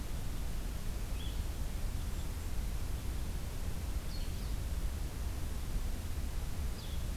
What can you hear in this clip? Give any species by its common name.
Blue-headed Vireo, Red Crossbill